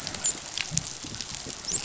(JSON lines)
{"label": "biophony, dolphin", "recorder": "SoundTrap 500"}